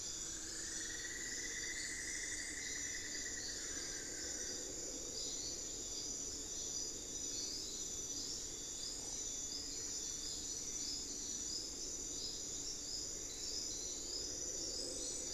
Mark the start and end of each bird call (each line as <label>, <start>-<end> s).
Cinnamon-throated Woodcreeper (Dendrexetastes rufigula), 0.0-4.2 s
Solitary Black Cacique (Cacicus solitarius), 3.3-4.7 s